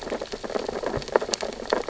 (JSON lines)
{"label": "biophony, sea urchins (Echinidae)", "recorder": "SoundTrap 600 or HydroMoth"}